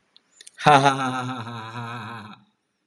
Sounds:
Laughter